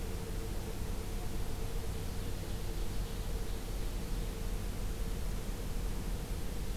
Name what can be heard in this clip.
Ovenbird